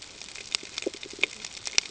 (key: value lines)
label: ambient
recorder: HydroMoth